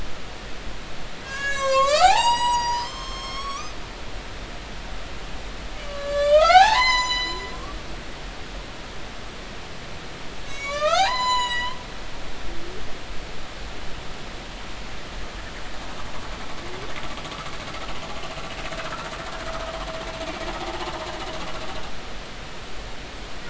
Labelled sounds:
1.2	3.8	humpback whale, 0.80 to 8.0 kHz
5.8	7.6	humpback whale, 0.80 to 8.0 kHz
10.5	11.8	humpback whale, 0.80 to 8.0 kHz
20.6	20.9	humpback whale, 0.80 to 0.90 kHz

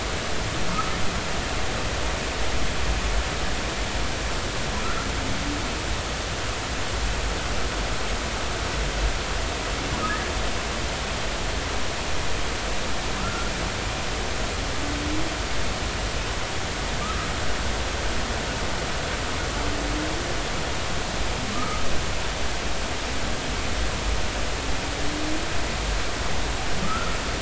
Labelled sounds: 17.0	17.3	humpback whale, 1.1 to 1.4 kHz
21.5	21.8	humpback whale, 1.2 to 1.4 kHz
26.8	27.2	humpback whale, 1.2 to 1.5 kHz

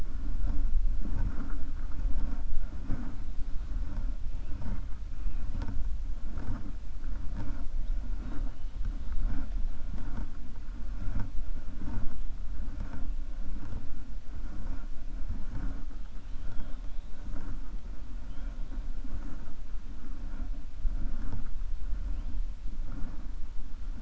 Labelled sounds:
16.2	16.8	killer whale, 2.6 to 4.2 kHz

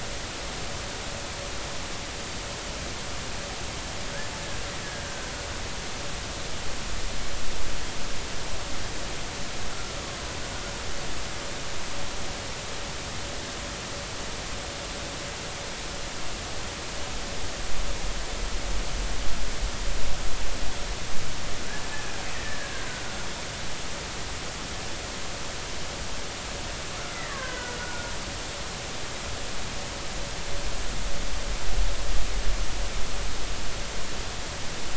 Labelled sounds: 5.0	5.3	killer whale, Bigg's (transient), 1.5 to 1.6 kHz
21.9	22.9	killer whale, Bigg's (transient), 1.5 to 2.0 kHz
27.0	28.1	killer whale, Bigg's (transient), 0.93 to 2.1 kHz

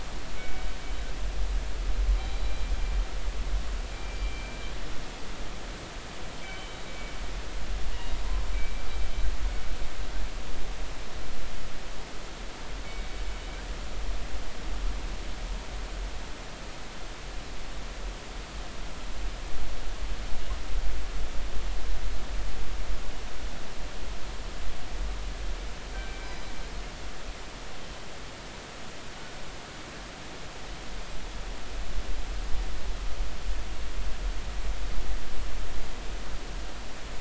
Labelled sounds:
0.4	0.7	killer whale, northern resident, G clan, 1.5 to 2.3 kHz
2.2	2.7	killer whale, northern resident, G clan, 3.8 to 4.0 kHz
3.9	4.5	killer whale, northern resident, G clan, 2.2 to 2.4 kHz
6.4	6.8	killer whale, northern resident, G clan, 3.0 to 3.1 kHz
8.5	8.9	killer whale, northern resident, G clan, 2.2 to 2.4 kHz
12.8	13.1	killer whale, northern resident, G clan, 2.2 to 2.3 kHz
25.9	26.5	killer whale, northern resident, G clan, 1.5 to 5.1 kHz

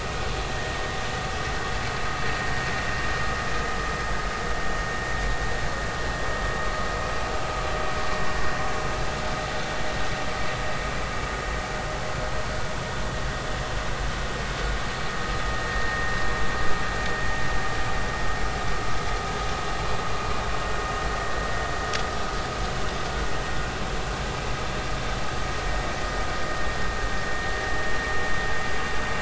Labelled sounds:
15.7	16.0	vessel noise, 1.8 to 1.9 kHz

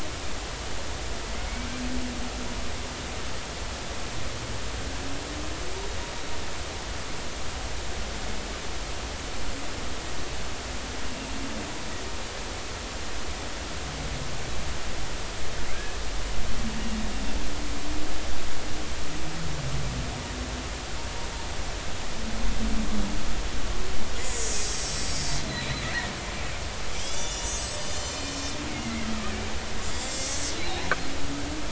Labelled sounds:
15.7	16.0	killer whale, Bigg's (transient), 1.5 to 1.8 kHz
24.2	25.2	killer whale, Bigg's (transient), 1.9 to 7.8 kHz
27.0	29.1	killer whale, Bigg's (transient), 2.0 to 8.0 kHz
29.9	30.8	killer whale, Bigg's (transient), 3.3 to 7.8 kHz

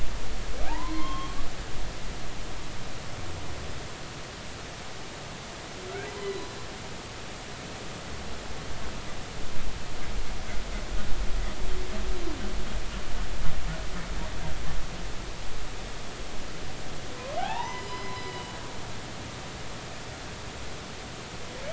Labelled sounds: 0.7	1.4	humpback whale, 0.80 to 3.3 kHz
6.1	6.4	humpback whale, 0.93 to 1.1 kHz
17.4	18.6	humpback whale, 0.80 to 5.1 kHz

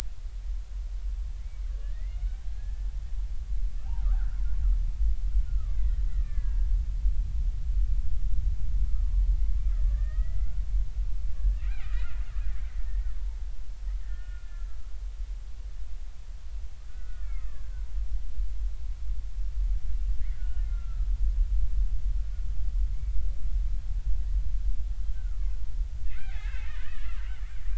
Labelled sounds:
1.4	2.9	killer whale, Bigg's (transient), 1.4 to 3.1 kHz
4.0	4.4	killer whale, Bigg's (transient), 1.1 to 1.7 kHz
5.5	6.7	killer whale, Bigg's (transient), 1.1 to 2.3 kHz
9.7	10.6	killer whale, Bigg's (transient), 1.1 to 2.2 kHz
11.4	12.2	killer whale, Bigg's (transient), 1.2 to 2.6 kHz
12.9	13.1	killer whale, Bigg's (transient), 1.8 to 1.9 kHz
14.0	14.8	killer whale, Bigg's (transient), 1.3 to 1.9 kHz
16.9	17.8	killer whale, Bigg's (transient), 1.1 to 2.4 kHz
20.3	21.1	killer whale, Bigg's (transient), 1.2 to 1.5 kHz
25.1	25.4	killer whale, Bigg's (transient), 1.2 to 1.6 kHz
26.0	27.2	killer whale, Bigg's (transient), 0.80 to 3.1 kHz

